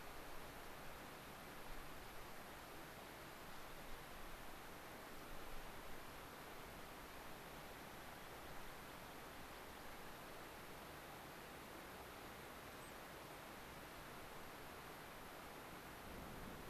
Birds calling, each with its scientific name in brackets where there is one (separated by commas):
American Pipit (Anthus rubescens), unidentified bird